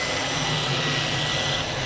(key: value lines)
label: anthrophony, boat engine
recorder: SoundTrap 500